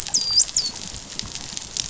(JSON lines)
{"label": "biophony, dolphin", "recorder": "SoundTrap 500"}